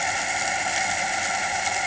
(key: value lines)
label: anthrophony, boat engine
recorder: HydroMoth